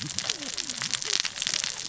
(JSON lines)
{"label": "biophony, cascading saw", "recorder": "SoundTrap 600 or HydroMoth"}